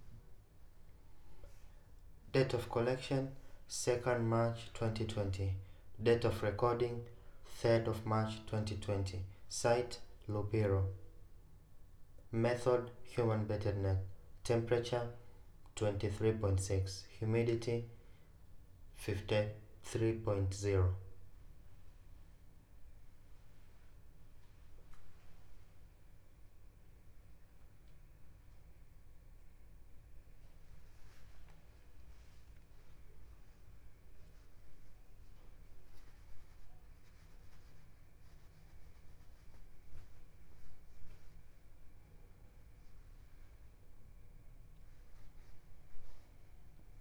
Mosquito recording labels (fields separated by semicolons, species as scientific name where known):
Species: no mosquito; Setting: cup